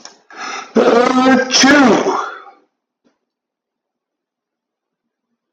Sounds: Sneeze